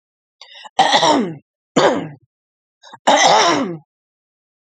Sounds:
Throat clearing